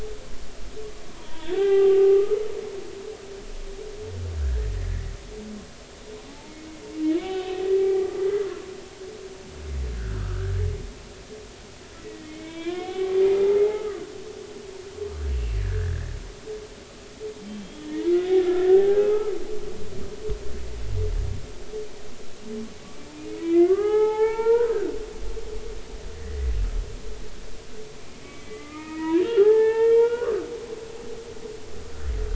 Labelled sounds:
1.1	2.4	humpback whale, 0.80 to 3.6 kHz
4.4	5.1	humpback whale, 1.3 to 2.0 kHz
6.3	6.8	humpback whale, 0.80 to 2.2 kHz
7.2	8.6	humpback whale, 0.80 to 3.1 kHz
9.9	10.5	humpback whale, 1.2 to 1.8 kHz
12.0	13.2	humpback whale, 0.80 to 3.7 kHz
13.7	14.0	humpback whale, 1.1 to 1.3 kHz
15.3	16.2	humpback whale, 1.4 to 2.8 kHz
17.6	19.3	humpback whale, 0.80 to 3.4 kHz
23.4	24.7	humpback whale, 0.80 to 3.5 kHz
26.2	26.5	humpback whale, 1.7 to 2.0 kHz
28.2	30.4	humpback whale, 0.80 to 3.4 kHz

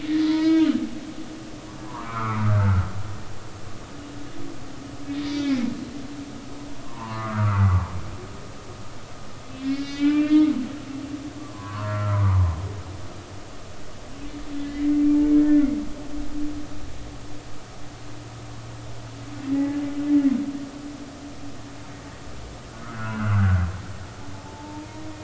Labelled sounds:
0.1	0.8	humpback whale, 0.90 to 4.3 kHz
1.9	2.9	humpback whale, 0.86 to 2.5 kHz
5.2	5.7	humpback whale, 2.0 to 2.6 kHz
6.8	7.6	humpback whale, 0.80 to 1.7 kHz
8.5	10.5	humpback whale, 1.5 to 4.5 kHz
12.1	13.2	humpback whale, 0.86 to 1.5 kHz
14.6	14.9	humpback whale, 2.0 to 2.1 kHz
19.5	19.8	humpback whale, 1.9 to 2.0 kHz
22.8	23.5	humpback whale, 1.2 to 2.9 kHz
24.4	25.0	humpback whale, 0.83 to 0.99 kHz

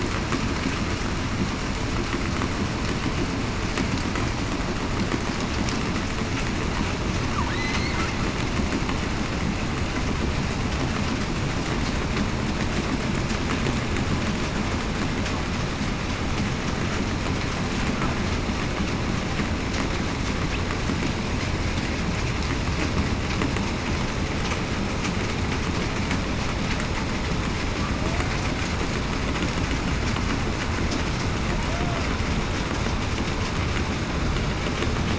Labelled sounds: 7.5	7.9	killer whale, southern resident, 2.0 to 4.5 kHz
31.7	32.0	killer whale, southern resident, 0.61 to 0.73 kHz

